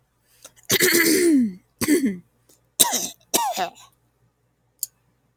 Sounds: Throat clearing